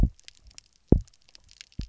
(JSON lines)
{"label": "biophony, double pulse", "recorder": "SoundTrap 300"}